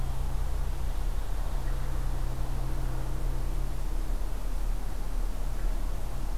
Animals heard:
forest ambience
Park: Acadia National Park